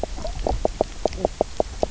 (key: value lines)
label: biophony, knock croak
recorder: SoundTrap 300